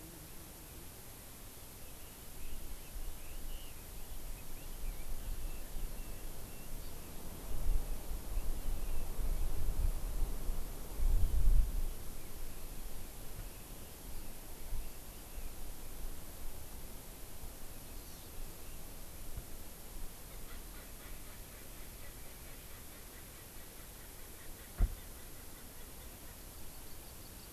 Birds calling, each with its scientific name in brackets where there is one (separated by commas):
Erckel's Francolin (Pternistis erckelii), Red-billed Leiothrix (Leiothrix lutea), Hawaii Amakihi (Chlorodrepanis virens)